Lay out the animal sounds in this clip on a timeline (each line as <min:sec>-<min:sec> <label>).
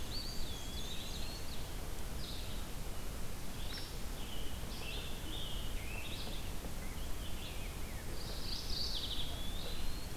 0:00.0-0:01.9 Eastern Wood-Pewee (Contopus virens)
0:00.0-0:10.2 Red-eyed Vireo (Vireo olivaceus)
0:00.2-0:01.7 Ovenbird (Seiurus aurocapilla)
0:00.2-0:01.3 Black-and-white Warbler (Mniotilta varia)
0:03.6-0:03.9 Hairy Woodpecker (Dryobates villosus)
0:04.0-0:06.3 Scarlet Tanager (Piranga olivacea)
0:06.7-0:08.1 Rose-breasted Grosbeak (Pheucticus ludovicianus)
0:08.1-0:09.3 Mourning Warbler (Geothlypis philadelphia)
0:08.3-0:10.2 Eastern Wood-Pewee (Contopus virens)